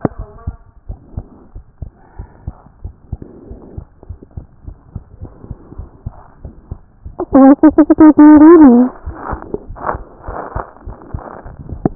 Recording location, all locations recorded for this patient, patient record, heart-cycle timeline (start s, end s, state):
pulmonary valve (PV)
aortic valve (AV)+pulmonary valve (PV)+tricuspid valve (TV)+mitral valve (MV)
#Age: Child
#Sex: Male
#Height: 103.0 cm
#Weight: 15.4 kg
#Pregnancy status: False
#Murmur: Absent
#Murmur locations: nan
#Most audible location: nan
#Systolic murmur timing: nan
#Systolic murmur shape: nan
#Systolic murmur grading: nan
#Systolic murmur pitch: nan
#Systolic murmur quality: nan
#Diastolic murmur timing: nan
#Diastolic murmur shape: nan
#Diastolic murmur grading: nan
#Diastolic murmur pitch: nan
#Diastolic murmur quality: nan
#Outcome: Normal
#Campaign: 2014 screening campaign
0.00	0.83	unannotated
0.83	0.88	diastole
0.88	1.00	S1
1.00	1.14	systole
1.14	1.24	S2
1.24	1.54	diastole
1.54	1.66	S1
1.66	1.82	systole
1.82	1.90	S2
1.90	2.16	diastole
2.16	2.28	S1
2.28	2.46	systole
2.46	2.54	S2
2.54	2.82	diastole
2.82	2.94	S1
2.94	3.12	systole
3.12	3.20	S2
3.20	3.50	diastole
3.50	3.60	S1
3.60	3.76	systole
3.76	3.86	S2
3.86	4.08	diastole
4.08	4.20	S1
4.20	4.36	systole
4.36	4.46	S2
4.46	4.66	diastole
4.66	4.76	S1
4.76	4.94	systole
4.94	5.02	S2
5.02	5.22	diastole
5.22	5.32	S1
5.32	5.48	systole
5.48	5.58	S2
5.58	5.76	diastole
5.76	5.88	S1
5.88	6.06	systole
6.06	6.14	S2
6.14	6.44	diastole
6.44	6.54	S1
6.54	6.70	systole
6.70	6.78	S2
6.78	6.97	diastole
6.97	11.95	unannotated